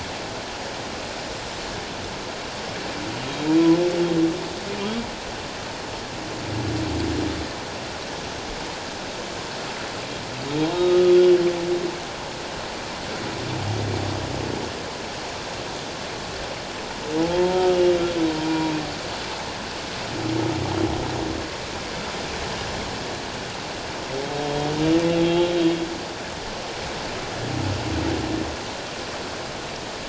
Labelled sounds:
10.7	11.0	humpback whale, 1.2 to 3.8 kHz
17.2	18.0	humpback whale, 0.81 to 2.9 kHz
18.4	18.7	humpback whale, 0.91 to 1.0 kHz
25.2	25.5	humpback whale, 2.7 to 3.3 kHz

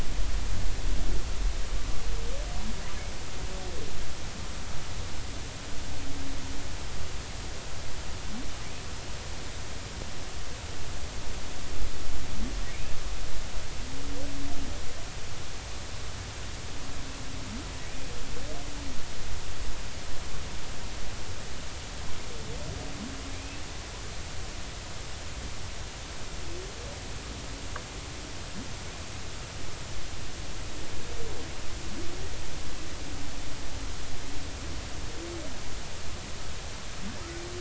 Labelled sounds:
12.7	12.9	humpback whale, 2.1 to 2.7 kHz
23.3	23.6	humpback whale, 2.1 to 2.7 kHz

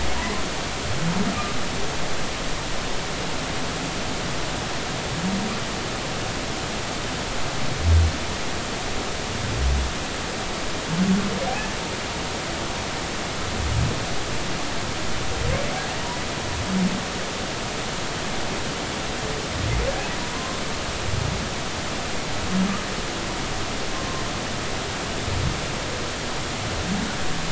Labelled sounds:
20.3	20.6	humpback whale, 0.96 to 1.1 kHz

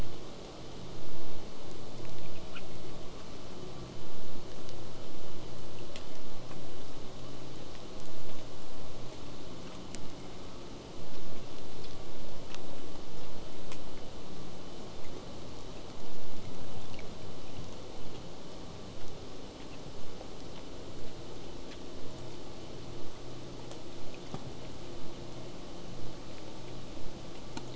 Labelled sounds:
18.7	23.7	vessel noise, 0 to 8.0 kHz

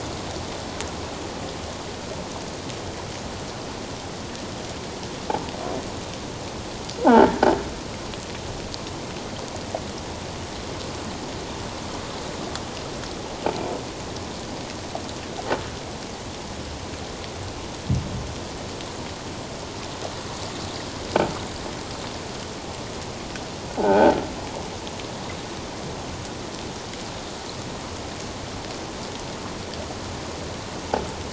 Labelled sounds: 7.0	7.4	croaking sound likely from a nearby submerged object, 0.78 to 1.7 kHz
23.8	24.1	croaking sound likely from a nearby submerged object, 0.78 to 1.6 kHz

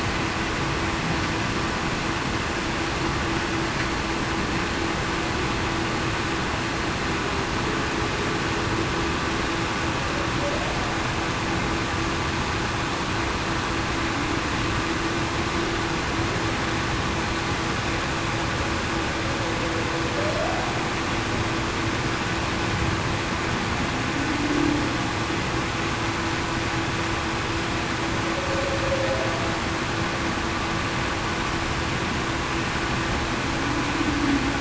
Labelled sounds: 20.3	20.7	humpback whale, 0.58 to 0.80 kHz

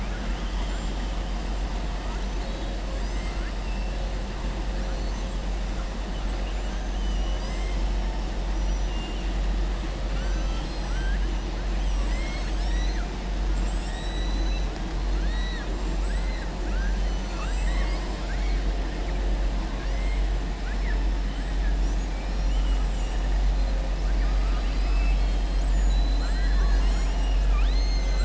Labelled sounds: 3.1	3.6	killer whale, southern resident, 1.3 to 2.9 kHz
10.0	11.3	killer whale, southern resident, 1.1 to 8.0 kHz
15.2	15.7	killer whale, southern resident, 1.2 to 4.3 kHz
19.7	20.2	killer whale, southern resident, 1.1 to 2.9 kHz

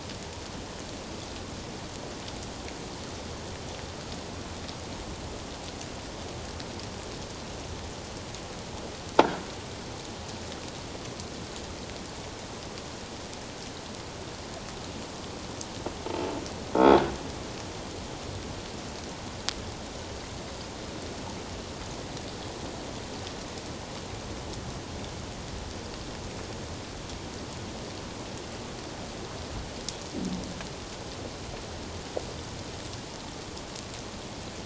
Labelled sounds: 16.7	17.0	croaking sound likely from a nearby submerged object, 3.2 to 3.5 kHz

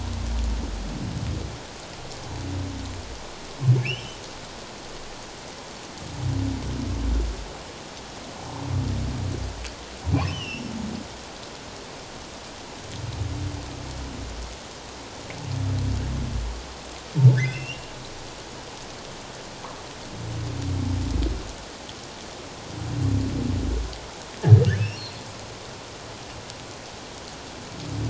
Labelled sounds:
3.8	4.2	humpback whale, 2.2 to 5.5 kHz
10.3	10.7	humpback whale, 2.6 to 5.6 kHz
17.4	17.9	humpback whale, 1.5 to 3.1 kHz
24.8	25.2	humpback whale, 2.4 to 4.4 kHz

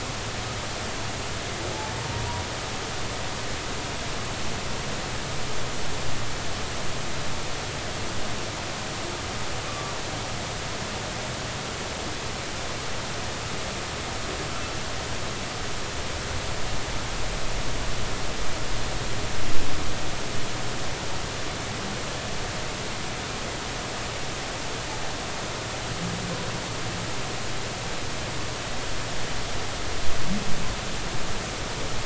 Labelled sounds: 2.0	2.4	humpback whale, 0.90 to 0.99 kHz
9.7	9.9	humpback whale, 1.1 to 1.2 kHz

